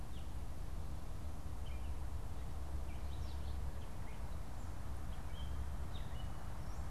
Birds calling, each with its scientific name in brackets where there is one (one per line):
Gray Catbird (Dumetella carolinensis)